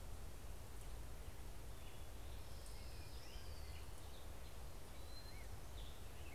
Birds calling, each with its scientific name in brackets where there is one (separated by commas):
Orange-crowned Warbler (Leiothlypis celata), Hermit Thrush (Catharus guttatus)